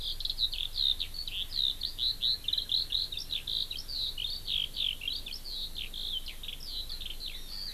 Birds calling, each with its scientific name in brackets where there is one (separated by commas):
Eurasian Skylark (Alauda arvensis), Hawaii Amakihi (Chlorodrepanis virens)